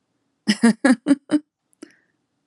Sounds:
Laughter